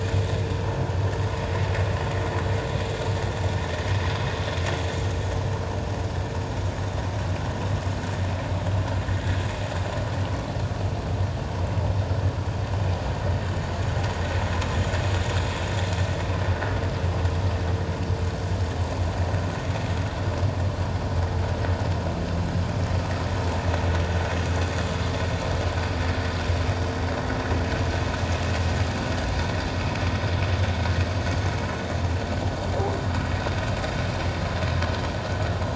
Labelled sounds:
9.1	9.4	vessel noise, 1.8 to 2.0 kHz

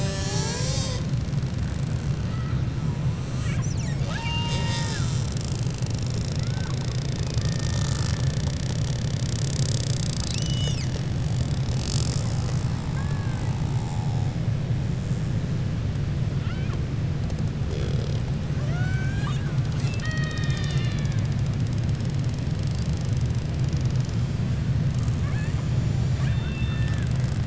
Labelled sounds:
3.7	5.6	killer whale, 0.64 to 8.0 kHz
12.7	13.6	killer whale, 0.81 to 2.1 kHz
18.5	19.6	killer whale, 0.63 to 4.1 kHz
25.1	25.6	killer whale, 0.77 to 2.7 kHz
26.1	27.1	killer whale, 0.89 to 4.3 kHz

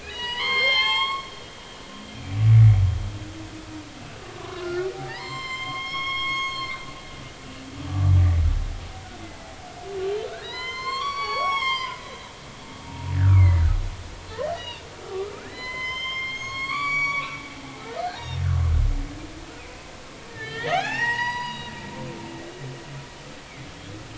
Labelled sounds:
0.0	1.3	humpback whale, 0.80 to 7.6 kHz
2.1	2.4	humpback whale, 2.2 to 2.5 kHz
4.4	6.7	humpback whale, 0.80 to 7.6 kHz
7.9	8.1	humpback whale, 1.1 to 1.2 kHz
9.2	9.5	humpback whale, 0.80 to 2.1 kHz
10.3	13.7	humpback whale, 0.80 to 7.8 kHz
14.3	17.4	humpback whale, 0.96 to 8.0 kHz
18.1	18.4	humpback whale, 3.6 to 3.8 kHz
19.6	19.9	humpback whale, 2.3 to 2.6 kHz
20.3	21.7	humpback whale, 0.80 to 5.9 kHz

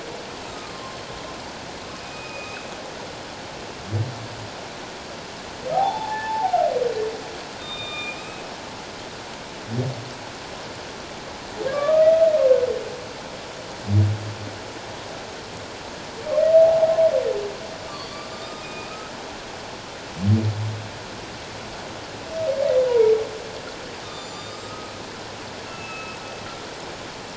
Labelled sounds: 0.7	1.0	humpback whale, 1.0 to 1.1 kHz
2.0	2.7	humpback whale, 2.4 to 2.7 kHz
5.7	6.7	humpback whale, 0.78 to 3.6 kHz
7.6	8.4	humpback whale, 1.2 to 3.8 kHz
11.7	12.1	humpback whale, 1.0 to 1.8 kHz
16.6	17.0	humpback whale, 0.78 to 0.88 kHz
17.8	19.0	humpback whale, 1.0 to 4.7 kHz
22.9	23.1	humpback whale, 0.88 to 1.0 kHz
24.0	24.9	humpback whale, 1.2 to 7.2 kHz
25.7	26.2	humpback whale, 1.2 to 2.7 kHz

